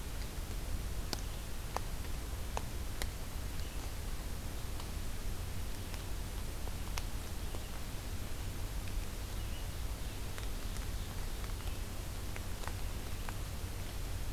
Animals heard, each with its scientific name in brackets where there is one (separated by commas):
Ovenbird (Seiurus aurocapilla)